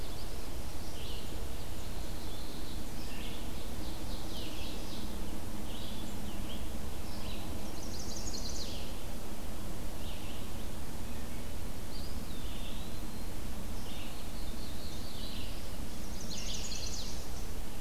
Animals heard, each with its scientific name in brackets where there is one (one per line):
Eastern Wood-Pewee (Contopus virens)
Black-throated Blue Warbler (Setophaga caerulescens)
Chestnut-sided Warbler (Setophaga pensylvanica)
Ovenbird (Seiurus aurocapilla)
Wood Thrush (Hylocichla mustelina)
Red-eyed Vireo (Vireo olivaceus)